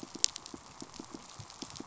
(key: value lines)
label: biophony, pulse
recorder: SoundTrap 500